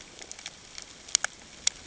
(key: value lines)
label: ambient
recorder: HydroMoth